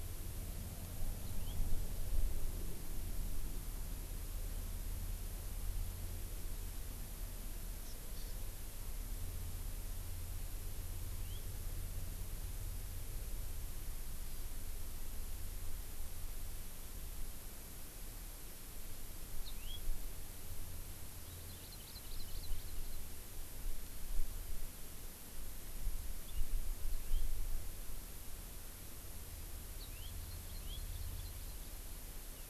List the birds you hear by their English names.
House Finch, Hawaii Amakihi